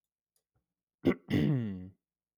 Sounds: Throat clearing